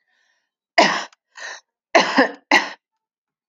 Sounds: Cough